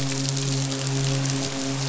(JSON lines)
{"label": "biophony, midshipman", "recorder": "SoundTrap 500"}